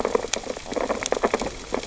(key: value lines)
label: biophony, sea urchins (Echinidae)
recorder: SoundTrap 600 or HydroMoth